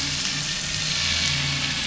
{"label": "anthrophony, boat engine", "recorder": "SoundTrap 500"}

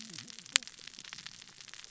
{"label": "biophony, cascading saw", "recorder": "SoundTrap 600 or HydroMoth"}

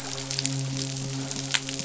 {"label": "biophony, midshipman", "recorder": "SoundTrap 500"}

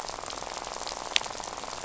{"label": "biophony, rattle", "recorder": "SoundTrap 500"}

